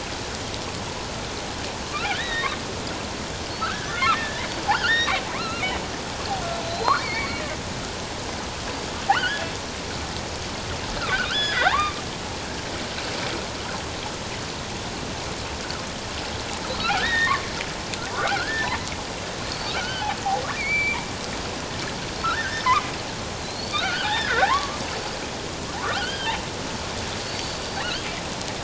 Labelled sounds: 2.1	2.6	killer whale, offshore, 1.6 to 4.0 kHz
3.6	5.7	killer whale, offshore, 0.84 to 4.2 kHz
6.6	7.4	killer whale, offshore, 1.8 to 4.7 kHz
9.1	9.5	killer whale, offshore, 1.1 to 3.4 kHz
11.2	12.0	killer whale, offshore, 0.78 to 5.2 kHz
16.7	17.5	killer whale, offshore, 0.97 to 3.8 kHz
18.1	18.7	killer whale, offshore, 0.91 to 1.8 kHz
19.4	21.0	killer whale, offshore, 1.2 to 4.7 kHz
22.2	22.9	killer whale, offshore, 0.94 to 1.9 kHz
23.4	24.8	killer whale, offshore, 0.78 to 4.9 kHz
25.8	26.3	killer whale, offshore, 1.1 to 3.3 kHz
27.2	27.8	killer whale, offshore, 4.3 to 4.7 kHz

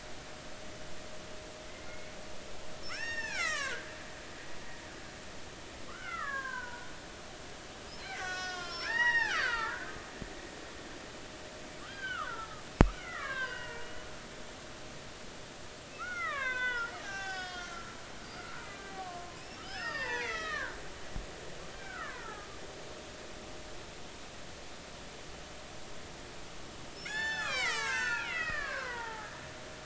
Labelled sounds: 1.7	4.9	killer whale, Bigg's (transient), 0.96 to 7.4 kHz
5.9	6.9	killer whale, Bigg's (transient), 0.90 to 3.1 kHz
8.0	11.0	killer whale, Bigg's (transient), 0.80 to 6.7 kHz
11.8	14.1	killer whale, Bigg's (transient), 0.93 to 3.3 kHz
16.0	20.8	killer whale, Bigg's (transient), 0.80 to 7.0 kHz
21.7	22.5	killer whale, Bigg's (transient), 0.93 to 2.0 kHz
27.0	29.3	killer whale, Bigg's (transient), 0.80 to 7.9 kHz

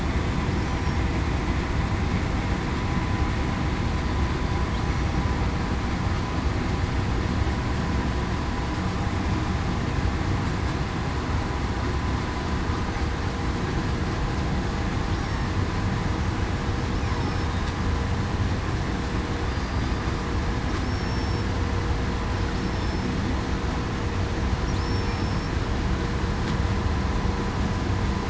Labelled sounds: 17.0	17.5	killer whale, southern resident, 5.3 to 5.4 kHz
19.5	19.9	killer whale, southern resident, 4.8 to 4.9 kHz
20.8	21.4	killer whale, southern resident, 5.2 to 5.5 kHz
22.6	23.1	killer whale, southern resident, 5.2 to 5.4 kHz
24.8	25.5	killer whale, southern resident, 5.1 to 5.5 kHz

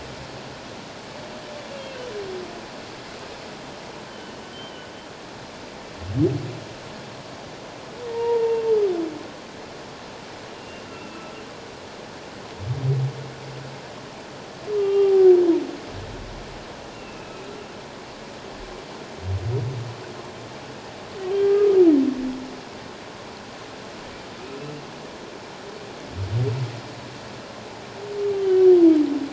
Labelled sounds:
4.1	4.9	humpback whale, 2.9 to 3.2 kHz
8.1	8.6	humpback whale, 0.84 to 1.0 kHz
10.6	11.2	humpback whale, 2.6 to 2.8 kHz
14.8	15.3	humpback whale, 0.78 to 3.3 kHz
16.9	17.5	humpback whale, 2.5 to 2.8 kHz
21.3	21.8	humpback whale, 1.2 to 1.7 kHz

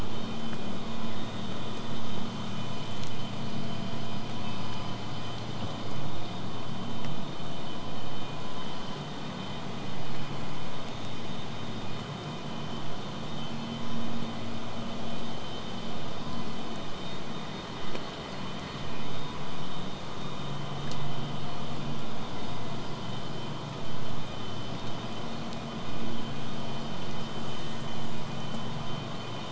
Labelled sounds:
27.3	27.8	killer whale, southern resident, buzz, 7.4 to 8.0 kHz

